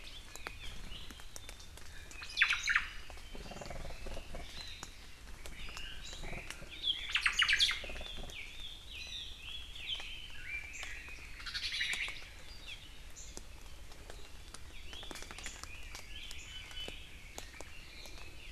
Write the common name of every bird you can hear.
Omao, Chinese Hwamei, Hawaii Amakihi, Iiwi